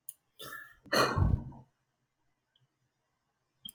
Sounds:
Sigh